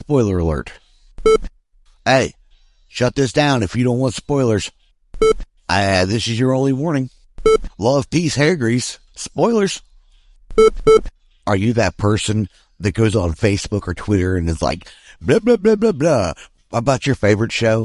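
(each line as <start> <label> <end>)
0.0 A man speaks. 0.9
1.1 An electronic sound. 1.6
2.0 A man speaks. 4.8
5.1 An electronic sound. 5.5
5.6 An unclearly spoken warning about a spoiler. 7.2
7.3 An electronic sound. 7.7
7.8 A man is speaking about a spoiler warning. 10.0
10.4 Two electronic sounds. 11.2
11.4 A man is speaking. 17.8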